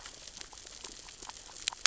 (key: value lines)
label: biophony, grazing
recorder: SoundTrap 600 or HydroMoth